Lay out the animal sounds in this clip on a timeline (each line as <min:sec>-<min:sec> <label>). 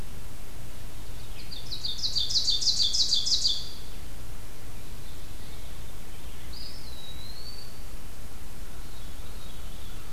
0:00.9-0:04.1 Ovenbird (Seiurus aurocapilla)
0:06.2-0:07.9 Eastern Wood-Pewee (Contopus virens)
0:08.8-0:10.1 Veery (Catharus fuscescens)